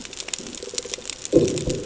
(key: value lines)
label: anthrophony, bomb
recorder: HydroMoth